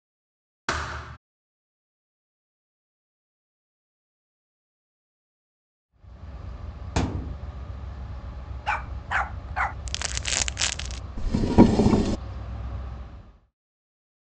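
From 5.88 to 13.56 seconds, a train can be heard, fading in and fading out. At 0.65 seconds, there is thumping. Then, at 6.95 seconds, you can hear thumping. Later, at 8.65 seconds, a dog barks. Next, at 9.85 seconds, the sound of crumpling is heard. Following that, at 11.16 seconds, wooden furniture moves loudly.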